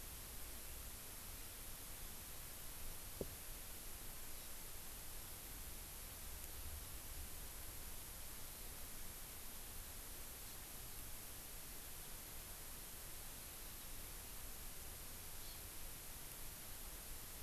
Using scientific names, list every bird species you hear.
Chlorodrepanis virens